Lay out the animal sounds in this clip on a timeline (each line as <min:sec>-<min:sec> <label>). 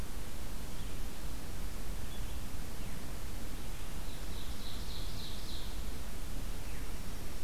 0:03.6-0:06.2 Ovenbird (Seiurus aurocapilla)
0:06.5-0:06.9 Veery (Catharus fuscescens)